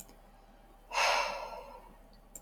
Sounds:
Sigh